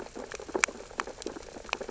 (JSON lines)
{"label": "biophony, sea urchins (Echinidae)", "recorder": "SoundTrap 600 or HydroMoth"}